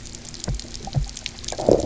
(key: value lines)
label: anthrophony, boat engine
recorder: SoundTrap 300

label: biophony, low growl
recorder: SoundTrap 300